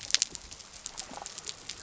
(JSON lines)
{"label": "biophony", "recorder": "SoundTrap 300"}